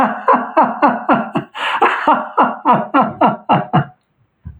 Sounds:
Laughter